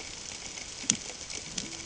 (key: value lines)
label: ambient
recorder: HydroMoth